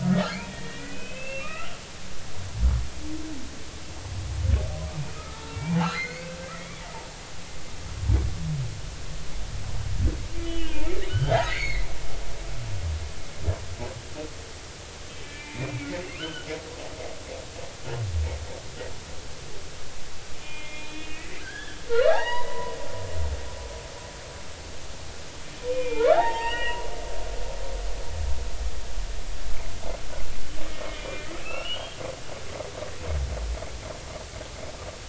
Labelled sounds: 0.0	1.8	humpback whale, 1.1 to 3.2 kHz
5.1	6.8	humpback whale, 0.80 to 4.7 kHz
10.4	11.9	humpback whale, 1.4 to 4.5 kHz
15.2	16.5	humpback whale, 1.2 to 3.1 kHz
20.4	22.8	humpback whale, 0.80 to 5.0 kHz
25.7	26.8	humpback whale, 0.80 to 7.6 kHz
31.0	31.9	humpback whale, 1.2 to 3.0 kHz

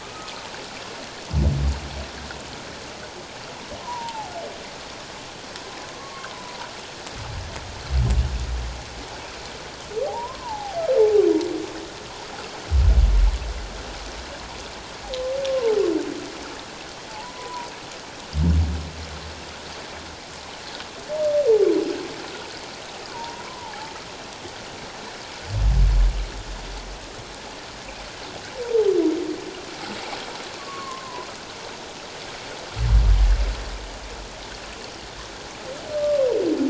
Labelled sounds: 0.0	0.3	humpback whale, 1.1 to 1.3 kHz
3.8	4.3	humpback whale, 0.78 to 1.1 kHz
6.0	6.3	humpback whale, 1.0 to 1.2 kHz
10.1	10.8	humpback whale, 0.78 to 1.1 kHz
15.5	15.8	humpback whale, 0.81 to 1.1 kHz
17.1	17.7	humpback whale, 0.81 to 1.1 kHz
23.1	23.9	humpback whale, 0.78 to 1.2 kHz
30.6	31.3	humpback whale, 0.94 to 1.2 kHz
35.9	36.2	humpback whale, 1.1 to 1.2 kHz

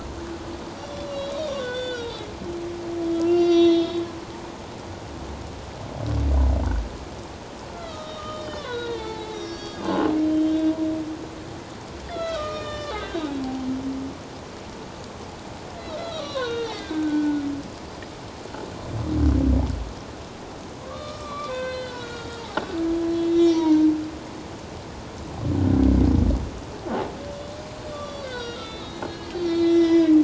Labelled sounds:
0.8	2.2	humpback whale, 1.3 to 5.8 kHz
3.1	4.0	humpback whale, 1.3 to 5.9 kHz
7.7	10.7	humpback whale, 0.81 to 5.9 kHz
12.0	13.3	humpback whale, 1.1 to 7.3 kHz
15.8	17.4	humpback whale, 0.94 to 6.2 kHz
20.8	22.7	humpback whale, 0.94 to 5.5 kHz
23.2	23.8	humpback whale, 0.88 to 5.8 kHz
27.9	30.2	humpback whale, 1.1 to 5.8 kHz

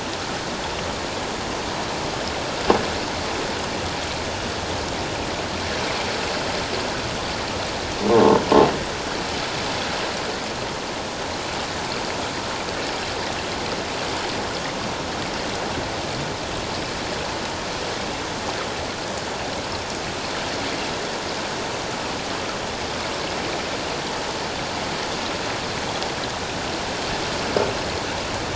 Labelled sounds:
8.1	8.4	croaking sound likely from a nearby submerged object, 0.84 to 1.1 kHz

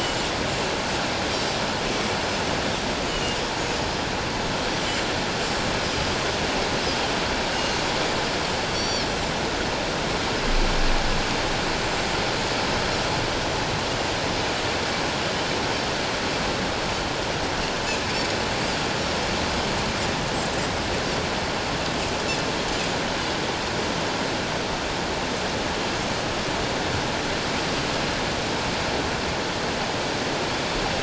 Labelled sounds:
3.1	3.4	Pacific white-sided dolphin, 2.8 to 3.1 kHz
7.5	7.8	Pacific white-sided dolphin, 6.2 to 6.5 kHz
8.7	9.1	Pacific white-sided dolphin, 4.1 to 5.8 kHz

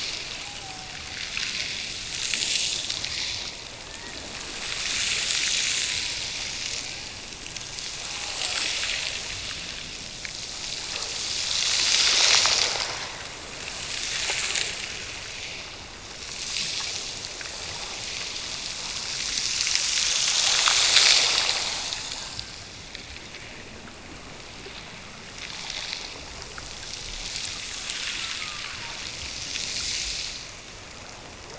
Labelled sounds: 0.3	1.2	killer whale, Bigg's (transient), Gulf of Alaska transient, 0.46 to 0.94 kHz
3.8	5.0	killer whale, Bigg's (transient), Gulf of Alaska transient, 1.4 to 2.0 kHz
27.8	29.0	killer whale, Bigg's (transient), Gulf of Alaska transient, 0.69 to 1.6 kHz

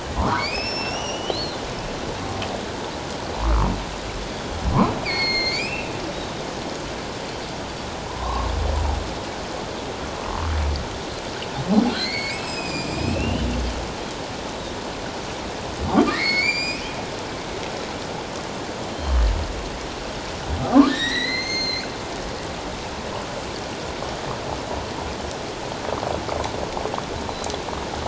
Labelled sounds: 0.1	1.6	humpback whale, 0.88 to 5.9 kHz
3.3	3.7	humpback whale, 0.84 to 1.4 kHz
5.0	5.9	humpback whale, 2.0 to 6.5 kHz
8.1	8.5	humpback whale, 0.88 to 1.2 kHz
11.9	13.5	humpback whale, 2.0 to 7.9 kHz
16.1	16.8	humpback whale, 1.6 to 7.7 kHz
18.9	19.2	humpback whale, 3.0 to 3.2 kHz
20.6	21.9	humpback whale, 0.78 to 6.4 kHz

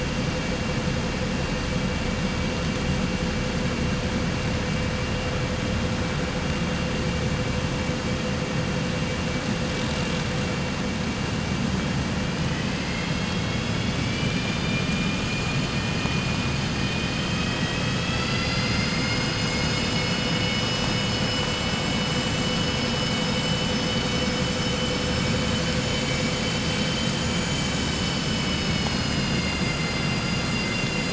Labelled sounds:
23.6	24.2	vessel noise, 4.4 to 6.0 kHz

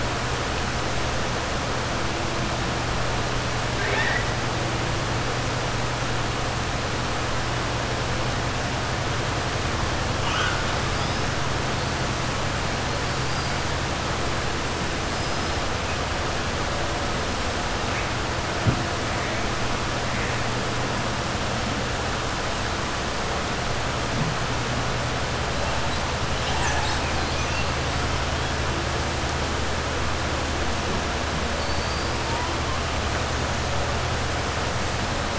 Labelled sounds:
3.7	4.3	killer whale, 0.42 to 4.0 kHz
15.1	15.6	killer whale, 4.1 to 6.1 kHz
31.5	32.1	killer whale, 4.4 to 4.8 kHz

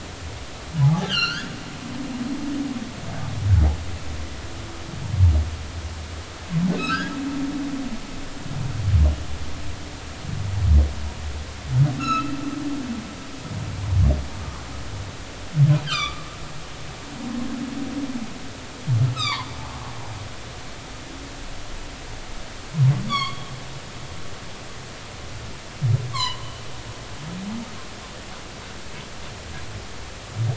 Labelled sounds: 0.8	1.5	humpback whale, 0.80 to 4.8 kHz
6.8	7.1	humpback whale, 1.2 to 2.9 kHz
12.0	12.3	humpback whale, 1.2 to 4.1 kHz
15.8	16.3	humpback whale, 1.1 to 5.0 kHz
19.1	19.5	humpback whale, 0.83 to 7.7 kHz
23.1	23.5	humpback whale, 1.0 to 4.7 kHz
24.1	24.4	humpback whale, 2.1 to 2.3 kHz
26.1	26.4	humpback whale, 0.90 to 4.5 kHz

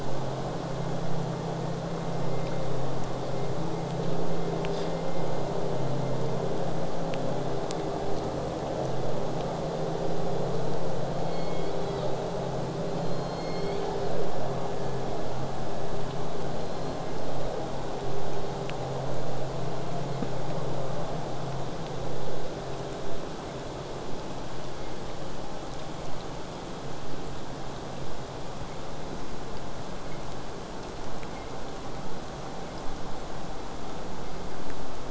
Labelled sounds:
11.0	12.1	killer whale, southern resident, J pod, call S01, 1.8 to 5.6 kHz
13.0	14.3	killer whale, southern resident, J pod, call S01, 1.9 to 7.9 kHz
16.5	17.5	killer whale, southern resident, J pod, 1.8 to 5.4 kHz

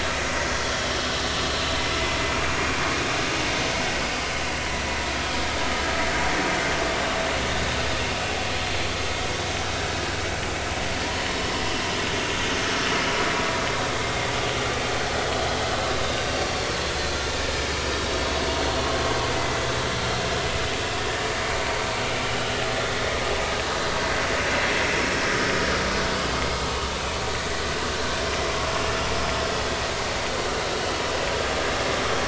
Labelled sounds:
0.7	1.0	vessel noise, 3.0 to 3.3 kHz
18.0	18.3	vessel noise, 5.4 to 5.6 kHz
24.7	24.9	vessel noise, 5.2 to 5.5 kHz

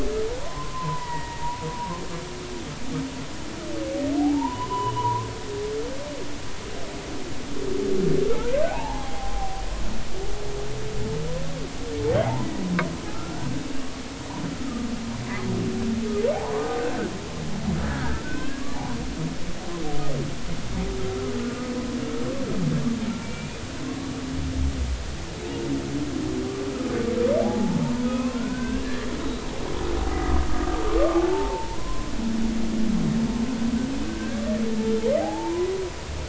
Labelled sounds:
0.4	1.4	humpback whale, 0.90 to 2.0 kHz
4.2	5.3	humpback whale, 0.80 to 3.0 kHz
8.3	9.6	humpback whale, 0.80 to 2.9 kHz
13.1	13.6	humpback whale, 1.2 to 1.6 kHz
16.3	16.7	humpback whale, 0.80 to 1.2 kHz
17.8	18.7	humpback whale, 1.4 to 1.8 kHz
23.2	23.6	humpback whale, 2.2 to 2.6 kHz
27.4	29.4	humpback whale, 0.80 to 2.7 kHz
31.0	32.1	humpback whale, 0.80 to 1.2 kHz
34.1	35.7	humpback whale, 0.80 to 1.7 kHz

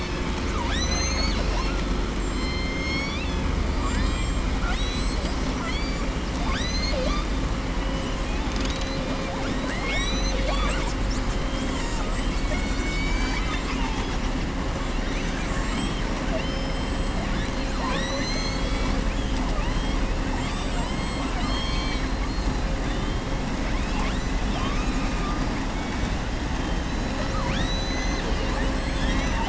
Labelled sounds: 0.3	1.8	killer whale, southern resident, 0.64 to 7.8 kHz
2.3	3.4	killer whale, southern resident, 2.1 to 6.7 kHz
3.7	6.1	killer whale, southern resident, 0.67 to 8.0 kHz
6.3	7.3	killer whale, southern resident, 0.56 to 7.8 kHz
15.0	15.6	killer whale, southern resident, 1.1 to 4.0 kHz
16.2	16.9	killer whale, southern resident, 2.1 to 4.1 kHz
17.2	19.0	killer whale, southern resident, 0.78 to 7.7 kHz
20.2	22.1	killer whale, southern resident, 0.75 to 7.9 kHz
23.6	25.4	killer whale, southern resident, 0.67 to 5.9 kHz

